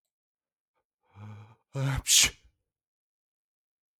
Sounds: Sneeze